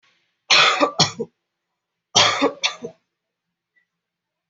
{"expert_labels": [{"quality": "ok", "cough_type": "dry", "dyspnea": false, "wheezing": false, "stridor": false, "choking": false, "congestion": false, "nothing": true, "diagnosis": "healthy cough", "severity": "pseudocough/healthy cough"}], "gender": "female", "respiratory_condition": false, "fever_muscle_pain": false, "status": "symptomatic"}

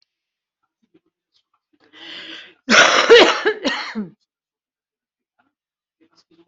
{"expert_labels": [{"quality": "good", "cough_type": "wet", "dyspnea": false, "wheezing": false, "stridor": false, "choking": false, "congestion": false, "nothing": true, "diagnosis": "lower respiratory tract infection", "severity": "mild"}], "age": 53, "gender": "female", "respiratory_condition": true, "fever_muscle_pain": false, "status": "COVID-19"}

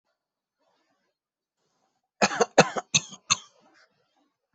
{"expert_labels": [{"quality": "ok", "cough_type": "dry", "dyspnea": false, "wheezing": false, "stridor": false, "choking": false, "congestion": false, "nothing": true, "diagnosis": "lower respiratory tract infection", "severity": "mild"}], "age": 34, "gender": "male", "respiratory_condition": false, "fever_muscle_pain": false, "status": "COVID-19"}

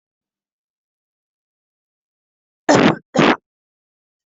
{"expert_labels": [{"quality": "poor", "cough_type": "unknown", "dyspnea": false, "wheezing": false, "stridor": false, "choking": false, "congestion": false, "nothing": true, "diagnosis": "upper respiratory tract infection", "severity": "unknown"}], "age": 18, "gender": "female", "respiratory_condition": false, "fever_muscle_pain": false, "status": "symptomatic"}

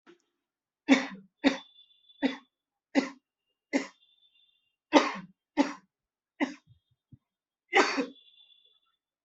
{"expert_labels": [{"quality": "good", "cough_type": "dry", "dyspnea": false, "wheezing": false, "stridor": false, "choking": false, "congestion": false, "nothing": true, "diagnosis": "upper respiratory tract infection", "severity": "severe"}], "age": 26, "gender": "male", "respiratory_condition": false, "fever_muscle_pain": false, "status": "symptomatic"}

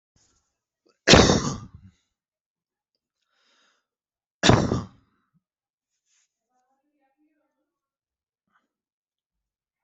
{"expert_labels": [{"quality": "ok", "cough_type": "wet", "dyspnea": false, "wheezing": false, "stridor": false, "choking": false, "congestion": false, "nothing": true, "diagnosis": "lower respiratory tract infection", "severity": "mild"}], "age": 28, "gender": "male", "respiratory_condition": false, "fever_muscle_pain": false, "status": "healthy"}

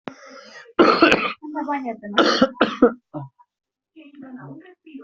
{"expert_labels": [{"quality": "ok", "cough_type": "wet", "dyspnea": true, "wheezing": false, "stridor": true, "choking": false, "congestion": false, "nothing": false, "diagnosis": "COVID-19", "severity": "mild"}], "age": 23, "gender": "male", "respiratory_condition": true, "fever_muscle_pain": false, "status": "healthy"}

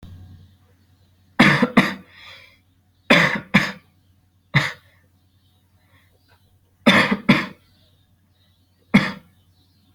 {"expert_labels": [{"quality": "good", "cough_type": "unknown", "dyspnea": false, "wheezing": false, "stridor": false, "choking": false, "congestion": false, "nothing": true, "diagnosis": "upper respiratory tract infection", "severity": "mild"}], "age": 22, "gender": "male", "respiratory_condition": false, "fever_muscle_pain": false, "status": "healthy"}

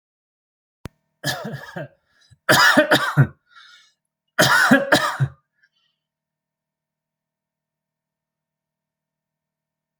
{"expert_labels": [{"quality": "ok", "cough_type": "dry", "dyspnea": false, "wheezing": false, "stridor": false, "choking": false, "congestion": false, "nothing": false, "diagnosis": "upper respiratory tract infection", "severity": "mild"}], "age": 48, "gender": "male", "respiratory_condition": false, "fever_muscle_pain": false, "status": "healthy"}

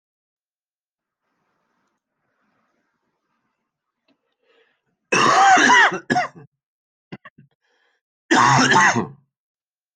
{"expert_labels": [{"quality": "good", "cough_type": "wet", "dyspnea": false, "wheezing": false, "stridor": false, "choking": false, "congestion": false, "nothing": true, "diagnosis": "lower respiratory tract infection", "severity": "mild"}], "age": 54, "gender": "male", "respiratory_condition": false, "fever_muscle_pain": false, "status": "symptomatic"}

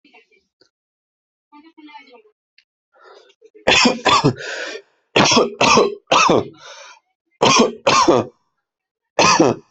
{"expert_labels": [{"quality": "ok", "cough_type": "dry", "dyspnea": false, "wheezing": false, "stridor": false, "choking": false, "congestion": false, "nothing": true, "diagnosis": "lower respiratory tract infection", "severity": "mild"}], "age": 29, "gender": "male", "respiratory_condition": true, "fever_muscle_pain": false, "status": "symptomatic"}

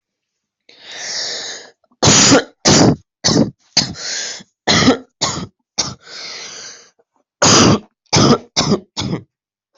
{"expert_labels": [{"quality": "good", "cough_type": "dry", "dyspnea": false, "wheezing": false, "stridor": false, "choking": false, "congestion": false, "nothing": true, "diagnosis": "upper respiratory tract infection", "severity": "mild"}]}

